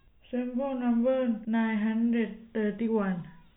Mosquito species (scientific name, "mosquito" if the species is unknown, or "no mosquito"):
no mosquito